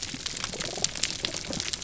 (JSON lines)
{"label": "biophony", "recorder": "SoundTrap 300"}